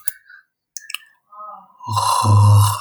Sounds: Throat clearing